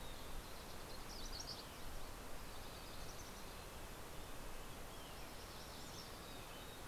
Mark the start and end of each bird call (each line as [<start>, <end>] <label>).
[0.00, 6.87] Mountain Chickadee (Poecile gambeli)
[0.00, 6.87] Red-breasted Nuthatch (Sitta canadensis)